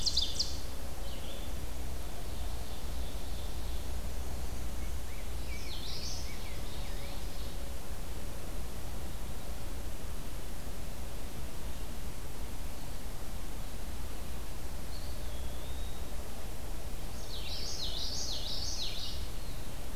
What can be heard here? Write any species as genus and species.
Seiurus aurocapilla, Vireo olivaceus, Pheucticus ludovicianus, Geothlypis trichas, Contopus virens